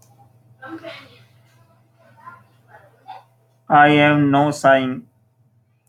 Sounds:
Sigh